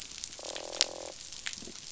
{"label": "biophony, croak", "recorder": "SoundTrap 500"}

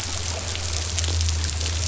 {"label": "anthrophony, boat engine", "recorder": "SoundTrap 500"}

